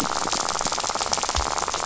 {"label": "biophony, rattle", "recorder": "SoundTrap 500"}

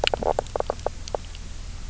{"label": "biophony, knock croak", "recorder": "SoundTrap 300"}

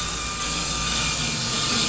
{"label": "anthrophony, boat engine", "recorder": "SoundTrap 500"}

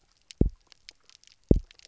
{"label": "biophony, double pulse", "recorder": "SoundTrap 300"}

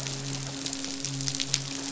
{"label": "biophony, midshipman", "recorder": "SoundTrap 500"}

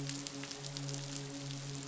{"label": "biophony, midshipman", "recorder": "SoundTrap 500"}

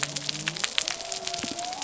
{"label": "biophony", "recorder": "SoundTrap 300"}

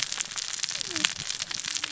{"label": "biophony, cascading saw", "recorder": "SoundTrap 600 or HydroMoth"}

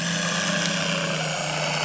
{"label": "anthrophony, boat engine", "recorder": "SoundTrap 300"}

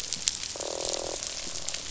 {"label": "biophony, croak", "recorder": "SoundTrap 500"}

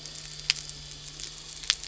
{"label": "anthrophony, boat engine", "recorder": "SoundTrap 300"}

